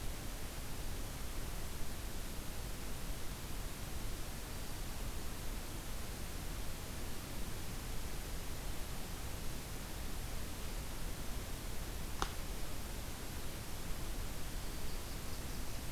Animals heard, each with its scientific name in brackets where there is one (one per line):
Ovenbird (Seiurus aurocapilla)